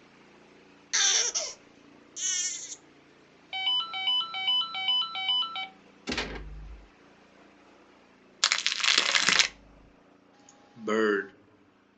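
At the start, there is crying. Then, about 4 seconds in, the sound of a ringtone plays. Next, about 6 seconds in, gunfire is audible. Following that, about 8 seconds in, you can hear crackling. Finally, about 11 seconds in, a voice says "bird". A faint continuous noise sits in the background.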